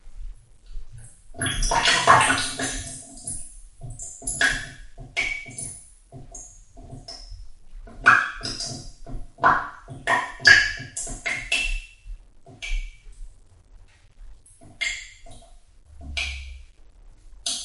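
Liquid dripping. 1.4 - 13.3
A droplet falls. 14.7 - 15.3
A droplet falling. 16.0 - 16.7
A droplet falling. 17.4 - 17.6

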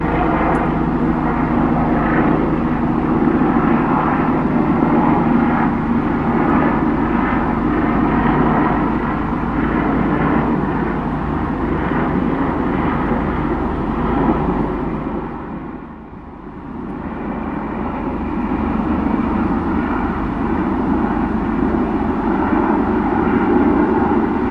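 A helicopter is flying at a moderate distance. 0.0 - 15.8
A helicopter is flying at a mid distance. 16.7 - 24.5

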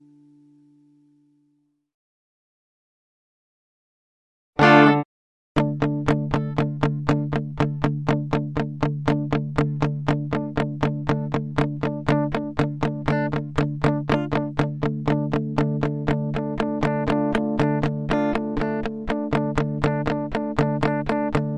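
A loud power chord is played. 4.5 - 5.1
A guitar strums power chords repeatedly. 5.5 - 21.6

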